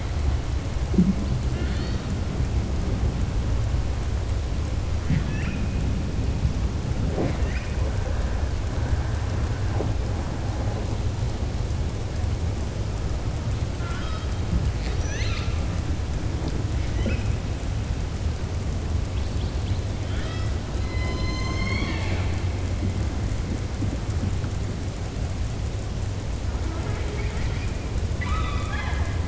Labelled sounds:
1.4	2.1	killer whale, southern resident, 1.4 to 4.7 kHz
13.7	14.3	killer whale, southern resident, 1.0 to 5.1 kHz
20.0	20.5	killer whale, southern resident, 0.70 to 5.3 kHz
20.8	22.4	killer whale, southern resident, 0.32 to 6.4 kHz
26.6	27.7	killer whale, southern resident, 0.38 to 4.9 kHz
28.1	29.2	killer whale, southern resident, 0.77 to 4.1 kHz

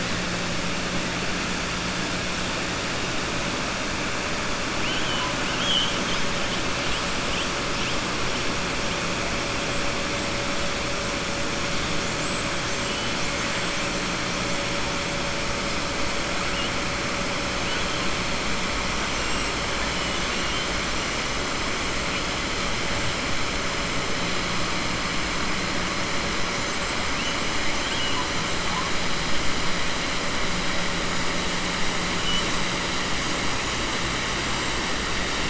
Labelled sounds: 4.7	6.3	killer whale, 0.99 to 4.2 kHz
20.0	20.7	killer whale, 2.8 to 3.7 kHz
27.8	28.3	killer whale, 2.7 to 3.4 kHz

